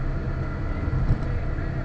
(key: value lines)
label: ambient
recorder: HydroMoth